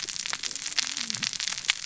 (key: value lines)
label: biophony, cascading saw
recorder: SoundTrap 600 or HydroMoth